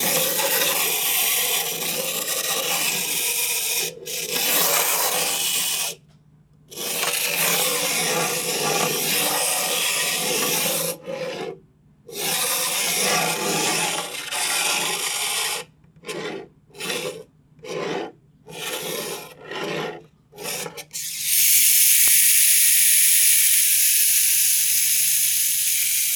Is there a machine running?
yes